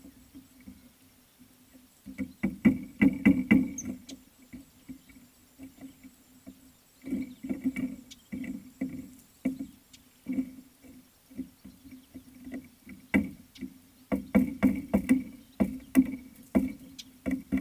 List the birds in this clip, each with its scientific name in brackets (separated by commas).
Somali Tit (Melaniparus thruppi)